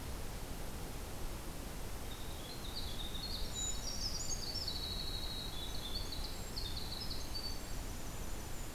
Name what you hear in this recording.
Winter Wren